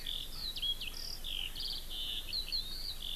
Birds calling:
Eurasian Skylark (Alauda arvensis)

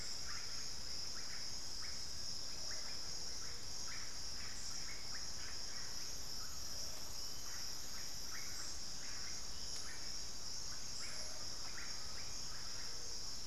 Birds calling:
Undulated Tinamou (Crypturellus undulatus), Russet-backed Oropendola (Psarocolius angustifrons)

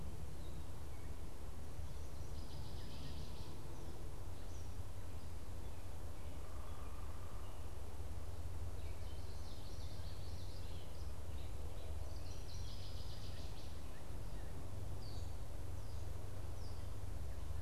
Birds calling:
Gray Catbird (Dumetella carolinensis), Common Yellowthroat (Geothlypis trichas), unidentified bird, Northern Waterthrush (Parkesia noveboracensis)

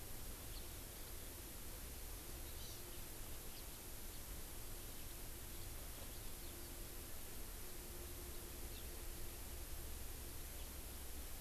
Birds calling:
House Finch (Haemorhous mexicanus), Hawaii Amakihi (Chlorodrepanis virens), Eurasian Skylark (Alauda arvensis)

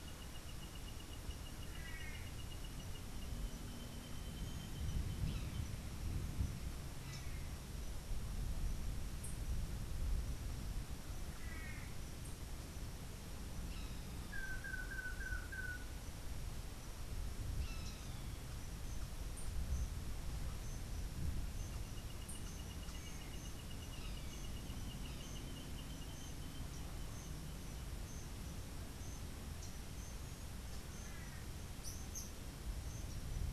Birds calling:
Long-tailed Manakin (Chiroxiphia linearis), Brown Jay (Psilorhinus morio)

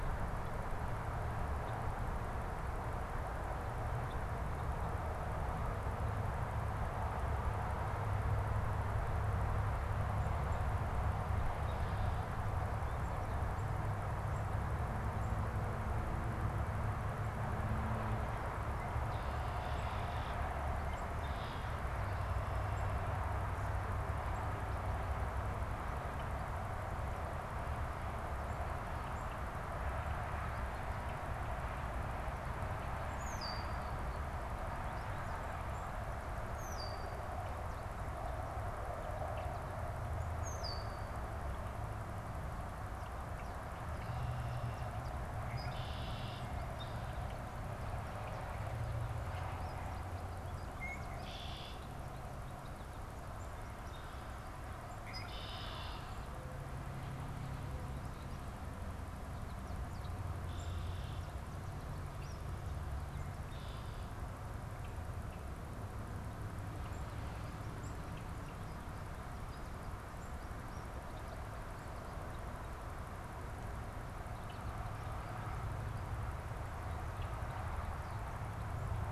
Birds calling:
unidentified bird, Red-winged Blackbird (Agelaius phoeniceus), American Goldfinch (Spinus tristis)

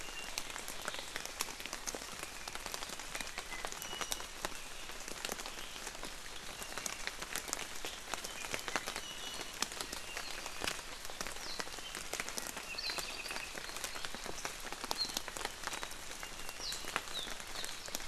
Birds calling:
Iiwi (Drepanis coccinea), Apapane (Himatione sanguinea)

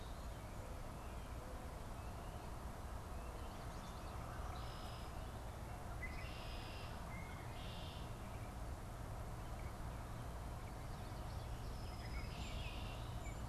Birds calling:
Baltimore Oriole (Icterus galbula), Red-winged Blackbird (Agelaius phoeniceus)

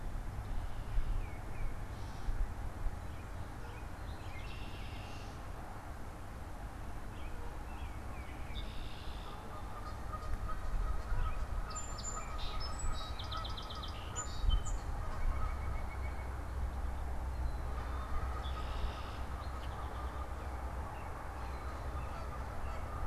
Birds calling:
Tufted Titmouse (Baeolophus bicolor), Song Sparrow (Melospiza melodia), American Robin (Turdus migratorius), White-breasted Nuthatch (Sitta carolinensis), Red-winged Blackbird (Agelaius phoeniceus), Canada Goose (Branta canadensis)

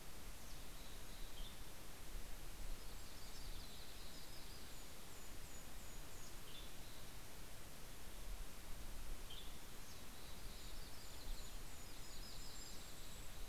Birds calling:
Yellow-rumped Warbler (Setophaga coronata), Western Tanager (Piranga ludoviciana), Golden-crowned Kinglet (Regulus satrapa)

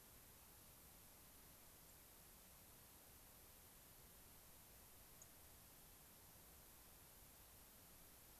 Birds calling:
unidentified bird, White-crowned Sparrow (Zonotrichia leucophrys)

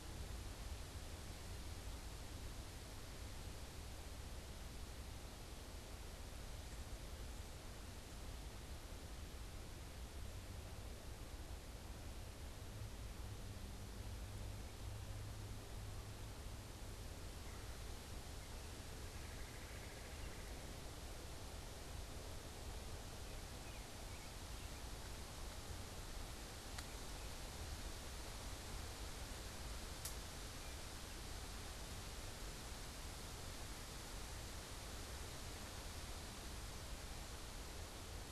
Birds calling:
Red-bellied Woodpecker (Melanerpes carolinus), American Robin (Turdus migratorius)

